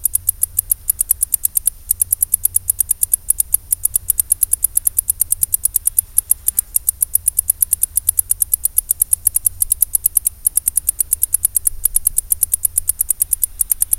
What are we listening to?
Decticus albifrons, an orthopteran